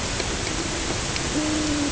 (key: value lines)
label: ambient
recorder: HydroMoth